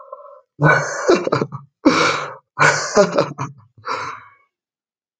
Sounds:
Laughter